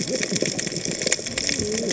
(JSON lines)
{"label": "biophony, cascading saw", "recorder": "HydroMoth"}